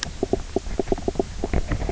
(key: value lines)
label: biophony, knock croak
recorder: SoundTrap 300